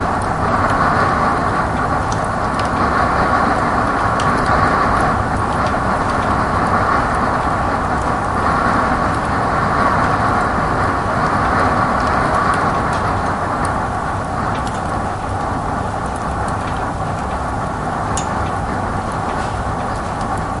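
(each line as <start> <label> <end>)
0.0 The fireplace crackles quietly and irregularly. 20.6
0.0 The wind quietly passes by in a monotone way inside a house. 20.6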